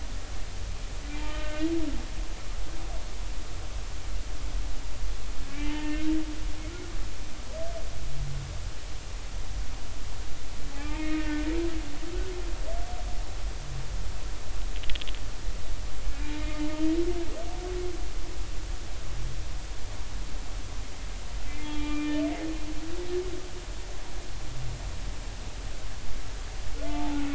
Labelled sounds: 1.2	1.7	humpback whale, 1.2 to 2.2 kHz
5.6	6.0	humpback whale, 0.83 to 3.1 kHz
10.7	11.5	humpback whale, 1.2 to 2.7 kHz
16.4	16.7	humpback whale, 2.1 to 2.2 kHz
21.4	22.1	humpback whale, 1.1 to 3.4 kHz
26.9	27.3	humpback whale, 0.80 to 0.93 kHz

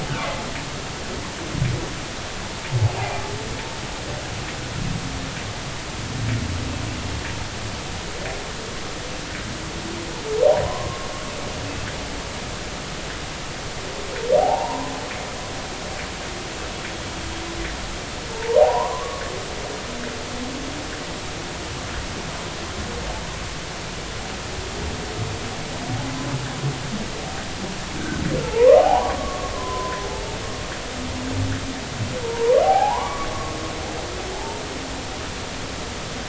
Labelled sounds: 2.9	3.2	humpback whale, 2.3 to 2.5 kHz
10.6	11.1	humpback whale, 0.93 to 1.1 kHz
11.6	11.9	humpback whale, 2.5 to 2.7 kHz
14.4	14.9	humpback whale, 0.80 to 1.1 kHz
18.3	19.2	humpback whale, 0.80 to 1.2 kHz
28.4	30.4	humpback whale, 0.80 to 1.2 kHz
32.2	33.3	humpback whale, 0.80 to 1.2 kHz
34.4	34.6	humpback whale, 0.80 to 0.96 kHz

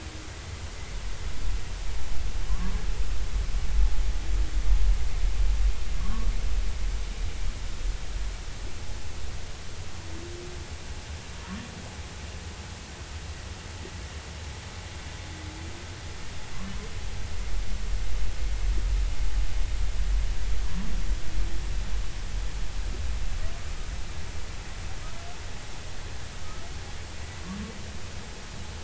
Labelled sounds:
2.5	2.7	humpback whale, 0.99 to 1.2 kHz
6.0	6.3	humpback whale, 0.96 to 1.2 kHz
21.7	21.9	humpback whale, 0.96 to 1.2 kHz

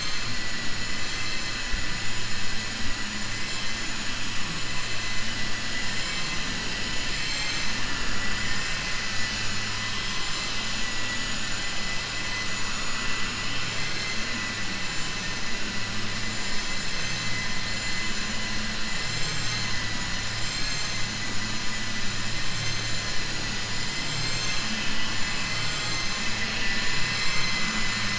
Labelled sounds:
5.7	7.7	vessel noise, 1.1 to 7.8 kHz
12.9	14.2	vessel noise, 1.2 to 4.3 kHz
25.4	26.4	vessel noise, 5.5 to 7.4 kHz

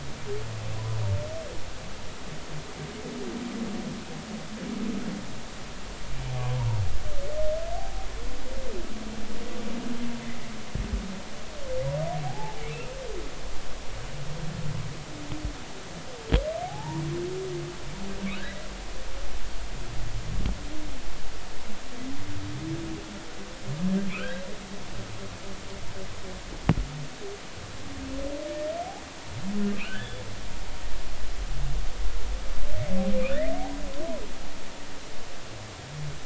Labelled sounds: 12.2	12.6	humpback whale, 0.80 to 0.93 kHz
16.6	17.0	humpback whale, 0.80 to 0.99 kHz
24.1	24.4	humpback whale, 1.2 to 1.7 kHz
28.5	28.7	humpback whale, 1.8 to 1.9 kHz
29.8	30.2	humpback whale, 1.3 to 3.6 kHz

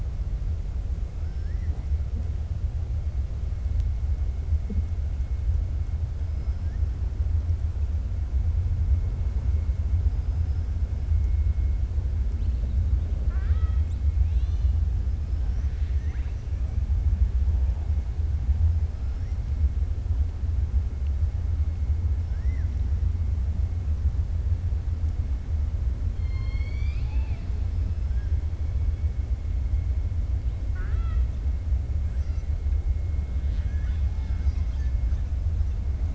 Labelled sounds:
13.1	14.0	killer whale, 0.53 to 4.5 kHz
15.2	16.4	killer whale, 0.99 to 6.1 kHz
26.1	27.5	killer whale, 0.70 to 5.8 kHz
33.4	34.1	killer whale, 1.1 to 4.7 kHz

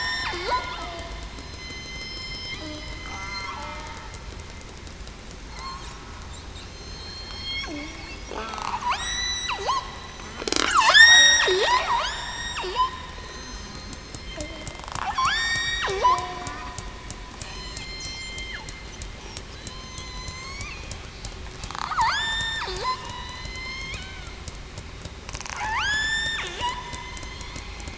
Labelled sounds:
0.0	1.0	killer whale, southern resident, 1.2 to 3.7 kHz
1.3	3.4	killer whale, southern resident, 4.1 to 6.3 kHz
6.6	7.7	killer whale, southern resident, 2.1 to 6.4 kHz
10.1	10.5	killer whale, southern resident, 5.9 to 6.2 kHz
10.9	11.4	killer whale, southern resident, 1.4 to 8.0 kHz
12.0	12.5	killer whale, southern resident, 2.9 to 3.8 kHz
13.1	13.9	killer whale, southern resident, 4.1 to 6.3 kHz
15.1	15.6	killer whale, southern resident, 4.5 to 5.8 kHz
16.0	16.5	killer whale, southern resident, 0.66 to 0.77 kHz
17.4	18.4	killer whale, southern resident, 1.9 to 5.3 kHz
19.7	20.6	killer whale, southern resident, 4.0 to 6.3 kHz
21.9	24.3	killer whale, southern resident, 0.84 to 7.3 kHz
25.5	25.9	killer whale, southern resident, 0.77 to 0.98 kHz
26.6	26.9	killer whale, southern resident, 0.91 to 1.1 kHz

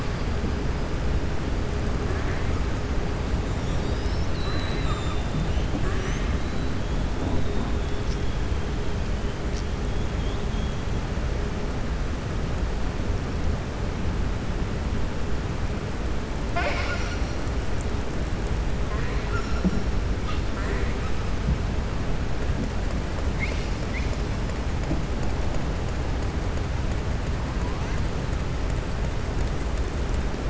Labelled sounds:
3.4	5.3	killer whale, southern resident, 1.2 to 7.5 kHz

